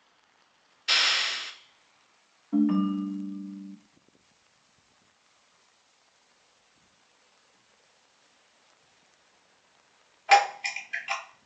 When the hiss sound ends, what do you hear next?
ringtone